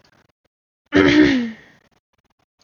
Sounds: Throat clearing